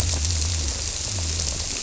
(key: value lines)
label: biophony
recorder: SoundTrap 300